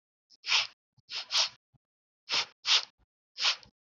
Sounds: Sniff